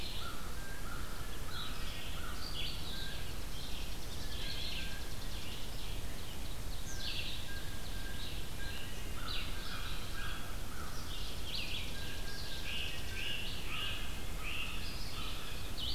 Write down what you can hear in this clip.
Red-eyed Vireo, American Crow, Blue Jay, Chipping Sparrow, Ovenbird, Great Crested Flycatcher